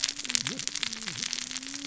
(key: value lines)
label: biophony, cascading saw
recorder: SoundTrap 600 or HydroMoth